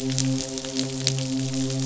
{"label": "biophony, midshipman", "recorder": "SoundTrap 500"}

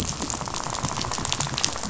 {"label": "biophony, rattle", "recorder": "SoundTrap 500"}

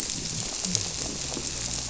{"label": "biophony", "recorder": "SoundTrap 300"}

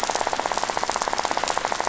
{"label": "biophony, rattle", "recorder": "SoundTrap 500"}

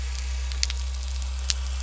{"label": "anthrophony, boat engine", "recorder": "SoundTrap 300"}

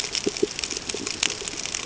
{"label": "ambient", "recorder": "HydroMoth"}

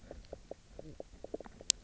{"label": "biophony, knock croak", "recorder": "SoundTrap 300"}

